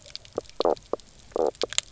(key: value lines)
label: biophony, knock croak
recorder: SoundTrap 300